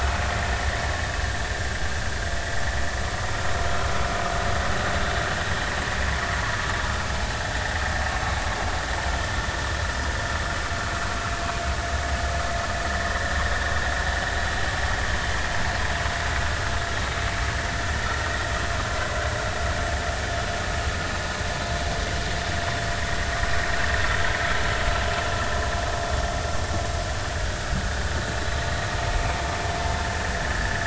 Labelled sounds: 13.0	13.3	vessel noise, 1.6 to 2.0 kHz
30.6	30.8	vessel noise, 1.6 to 2.0 kHz

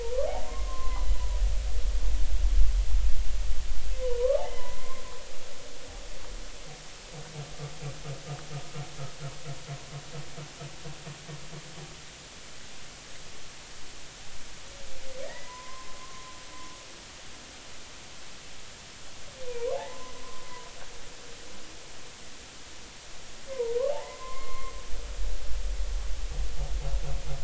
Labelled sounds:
0.0	1.4	humpback whale, 0.80 to 1.2 kHz
4.0	5.0	humpback whale, 0.93 to 3.1 kHz
15.3	16.2	humpback whale, 0.93 to 2.0 kHz
19.5	20.1	humpback whale, 0.80 to 1.2 kHz
23.5	24.7	humpback whale, 0.80 to 4.3 kHz

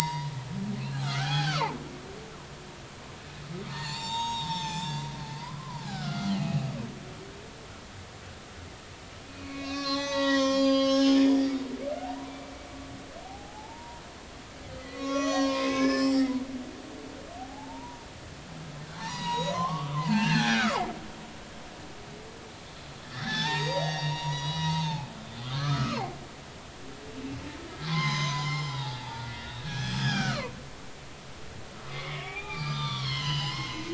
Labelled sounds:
1.0	1.8	humpback whale, 0.80 to 4.7 kHz
3.7	6.7	humpback whale, 0.80 to 7.6 kHz
9.2	11.5	humpback whale, 0.80 to 7.1 kHz
12.0	12.7	humpback whale, 0.80 to 2.4 kHz
13.2	14.0	humpback whale, 0.80 to 0.99 kHz
14.8	16.4	humpback whale, 0.90 to 7.0 kHz
17.4	18.1	humpback whale, 0.80 to 1.0 kHz
19.0	20.9	humpback whale, 0.80 to 6.9 kHz
23.0	25.1	humpback whale, 0.80 to 6.9 kHz
25.4	26.2	humpback whale, 0.80 to 4.3 kHz
27.7	30.6	humpback whale, 0.80 to 7.3 kHz
31.8	33.8	humpback whale, 0.80 to 6.4 kHz

